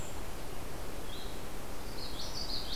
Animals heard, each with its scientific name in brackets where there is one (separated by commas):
Common Yellowthroat (Geothlypis trichas), Red-eyed Vireo (Vireo olivaceus)